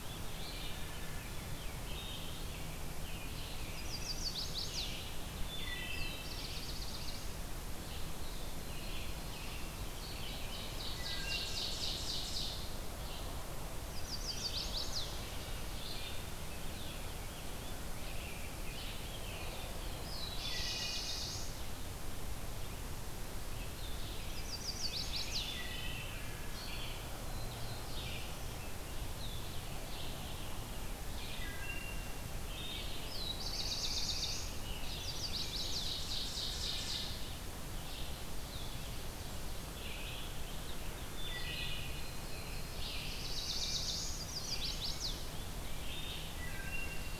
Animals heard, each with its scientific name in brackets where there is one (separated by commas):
Wood Thrush (Hylocichla mustelina), Black-throated Blue Warbler (Setophaga caerulescens), American Robin (Turdus migratorius), Blue-headed Vireo (Vireo solitarius), Ovenbird (Seiurus aurocapilla), Pine Warbler (Setophaga pinus), Red-eyed Vireo (Vireo olivaceus), Rose-breasted Grosbeak (Pheucticus ludovicianus), Chestnut-sided Warbler (Setophaga pensylvanica)